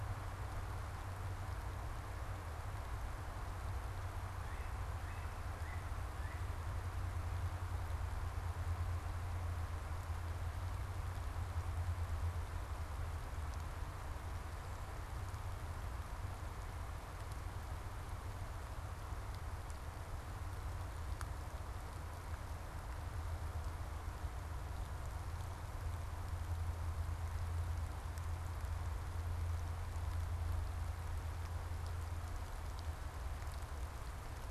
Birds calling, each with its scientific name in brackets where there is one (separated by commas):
Yellow-bellied Sapsucker (Sphyrapicus varius)